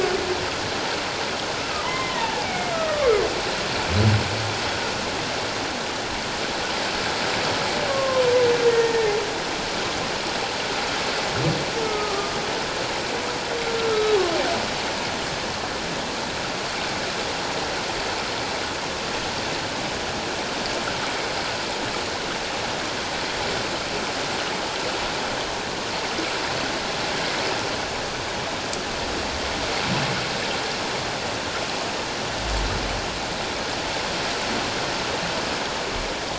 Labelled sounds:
1.8	3.1	humpback whale, 0.81 to 2.3 kHz
7.9	9.1	humpback whale, 0.97 to 1.9 kHz
11.8	12.3	humpback whale, 1.1 to 1.3 kHz
13.9	14.2	humpback whale, 1.2 to 1.4 kHz

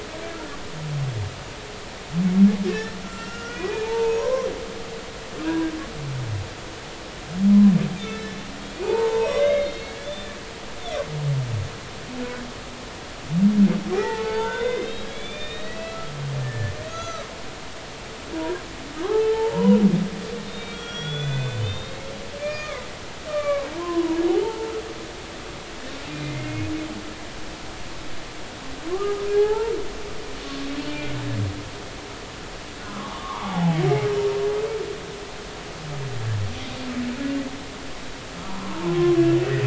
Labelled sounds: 2.7	4.5	humpback whale, 0.83 to 5.9 kHz
7.9	8.3	humpback whale, 2.1 to 2.5 kHz
8.7	10.3	humpback whale, 0.83 to 6.7 kHz
10.6	11.0	humpback whale, 4.2 to 4.4 kHz
13.9	16.1	humpback whale, 0.80 to 4.6 kHz
16.4	17.3	humpback whale, 1.2 to 6.8 kHz
18.3	19.8	humpback whale, 0.80 to 1.1 kHz
20.5	22.0	humpback whale, 1.3 to 5.8 kHz
22.4	24.8	humpback whale, 0.80 to 4.9 kHz
26.2	26.7	humpback whale, 2.0 to 2.2 kHz
28.9	29.7	humpback whale, 0.80 to 1.8 kHz
30.4	30.7	humpback whale, 1.1 to 1.2 kHz
32.8	33.8	humpback whale, 0.80 to 1.4 kHz
38.5	39.6	humpback whale, 0.80 to 2.0 kHz

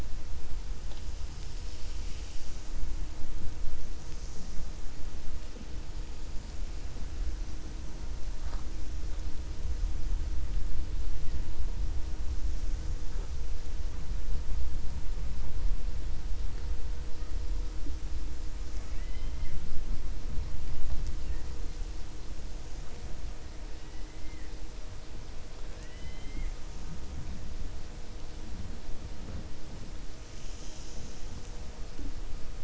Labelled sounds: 18.7	19.6	killer whale, 1.1 to 4.1 kHz

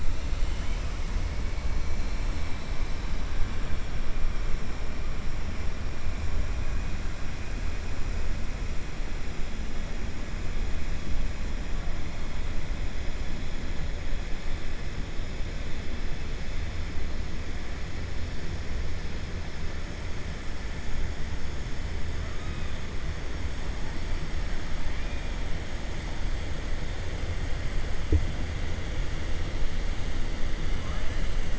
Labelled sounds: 24.9	25.3	killer whale, 1.7 to 3.4 kHz

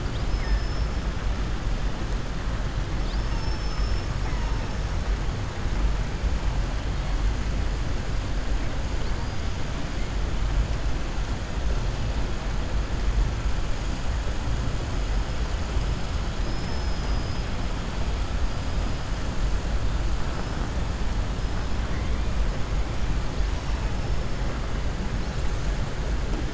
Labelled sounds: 0.0	0.9	killer whale, southern resident, 3.1 to 5.4 kHz
2.9	4.1	killer whale, southern resident, 3.5 to 6.3 kHz
16.4	17.4	killer whale, southern resident, 5.0 to 5.9 kHz

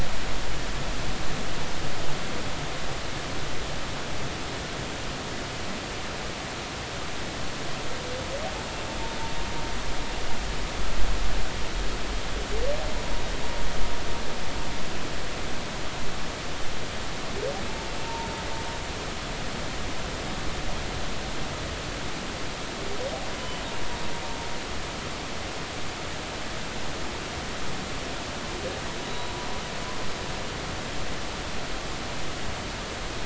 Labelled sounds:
18.1	18.3	humpback whale, 0.86 to 0.99 kHz
23.4	23.6	humpback whale, 2.9 to 3.1 kHz

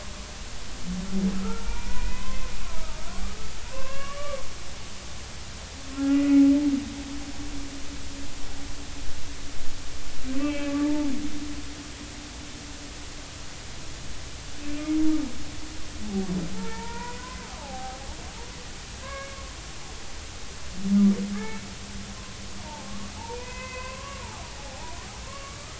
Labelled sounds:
1.4	2.5	humpback whale, 0.86 to 2.6 kHz
3.7	4.4	humpback whale, 0.86 to 2.9 kHz
5.9	6.4	humpback whale, 1.3 to 2.0 kHz
10.4	11.1	humpback whale, 0.83 to 3.3 kHz
16.5	18.0	humpback whale, 0.80 to 2.5 kHz
19.0	19.4	humpback whale, 0.99 to 2.3 kHz
21.3	21.7	humpback whale, 1.1 to 2.3 kHz
22.6	24.2	humpback whale, 0.80 to 2.7 kHz
24.6	25.0	humpback whale, 0.80 to 1.0 kHz
25.2	25.7	humpback whale, 1.0 to 1.3 kHz

